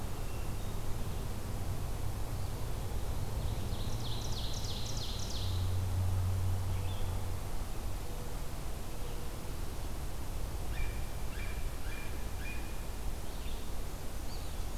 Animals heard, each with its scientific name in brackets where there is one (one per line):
Hermit Thrush (Catharus guttatus)
Blue Jay (Cyanocitta cristata)
Red-eyed Vireo (Vireo olivaceus)
Blackburnian Warbler (Setophaga fusca)
Ovenbird (Seiurus aurocapilla)
Eastern Wood-Pewee (Contopus virens)